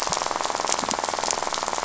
{"label": "biophony, rattle", "recorder": "SoundTrap 500"}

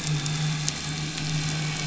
{"label": "anthrophony, boat engine", "recorder": "SoundTrap 500"}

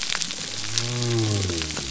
{"label": "biophony", "recorder": "SoundTrap 300"}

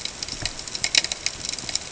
{"label": "ambient", "recorder": "HydroMoth"}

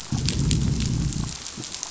{"label": "biophony, growl", "recorder": "SoundTrap 500"}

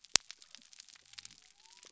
{"label": "biophony", "recorder": "SoundTrap 300"}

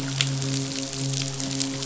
{"label": "biophony, midshipman", "recorder": "SoundTrap 500"}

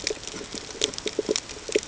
{"label": "ambient", "recorder": "HydroMoth"}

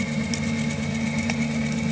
{"label": "anthrophony, boat engine", "recorder": "HydroMoth"}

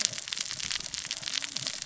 {"label": "biophony, cascading saw", "recorder": "SoundTrap 600 or HydroMoth"}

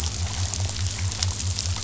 {"label": "biophony", "recorder": "SoundTrap 500"}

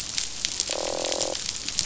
{"label": "biophony, croak", "recorder": "SoundTrap 500"}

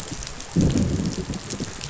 {"label": "biophony, growl", "recorder": "SoundTrap 500"}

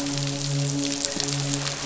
{"label": "biophony, midshipman", "recorder": "SoundTrap 500"}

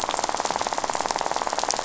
{"label": "biophony, rattle", "recorder": "SoundTrap 500"}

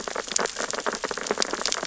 {"label": "biophony, sea urchins (Echinidae)", "recorder": "SoundTrap 600 or HydroMoth"}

